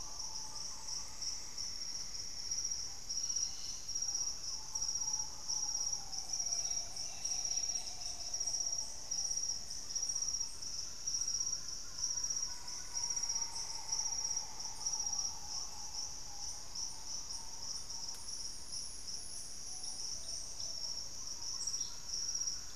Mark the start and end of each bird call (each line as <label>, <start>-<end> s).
Green Ibis (Mesembrinibis cayennensis), 0.0-22.8 s
Thrush-like Wren (Campylorhynchus turdinus), 0.9-5.0 s
Cobalt-winged Parakeet (Brotogeris cyanoptera), 2.9-8.5 s
Black-faced Antthrush (Formicarius analis), 8.1-10.3 s